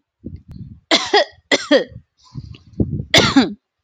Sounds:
Cough